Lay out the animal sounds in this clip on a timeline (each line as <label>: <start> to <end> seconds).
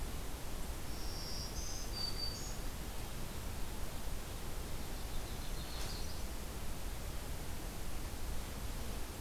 Black-throated Green Warbler (Setophaga virens): 0.6 to 2.8 seconds
Yellow-rumped Warbler (Setophaga coronata): 4.7 to 6.3 seconds